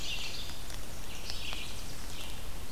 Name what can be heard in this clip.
Red-eyed Vireo, Tennessee Warbler